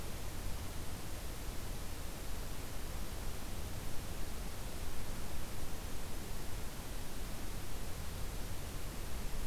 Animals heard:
forest ambience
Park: Hubbard Brook Experimental Forest